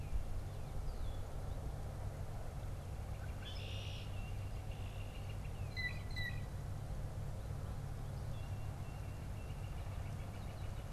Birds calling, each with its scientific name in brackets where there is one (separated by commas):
Northern Flicker (Colaptes auratus), Red-winged Blackbird (Agelaius phoeniceus), Northern Cardinal (Cardinalis cardinalis), Tufted Titmouse (Baeolophus bicolor), Blue Jay (Cyanocitta cristata)